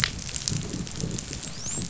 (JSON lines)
{"label": "biophony, dolphin", "recorder": "SoundTrap 500"}